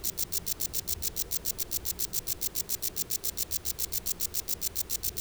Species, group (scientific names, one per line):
Rhacocleis baccettii
Orthoptera